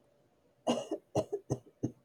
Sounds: Cough